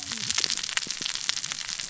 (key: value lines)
label: biophony, cascading saw
recorder: SoundTrap 600 or HydroMoth